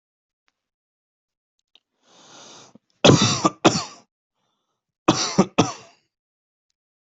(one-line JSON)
{"expert_labels": [{"quality": "good", "cough_type": "dry", "dyspnea": false, "wheezing": false, "stridor": false, "choking": false, "congestion": false, "nothing": true, "diagnosis": "COVID-19", "severity": "mild"}], "age": 22, "gender": "female", "respiratory_condition": false, "fever_muscle_pain": false, "status": "symptomatic"}